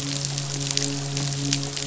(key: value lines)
label: biophony, midshipman
recorder: SoundTrap 500